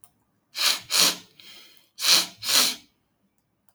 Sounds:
Sniff